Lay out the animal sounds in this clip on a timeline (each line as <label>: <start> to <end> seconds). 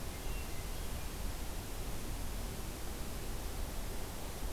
Hermit Thrush (Catharus guttatus): 0.3 to 1.3 seconds